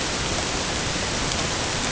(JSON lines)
{"label": "ambient", "recorder": "HydroMoth"}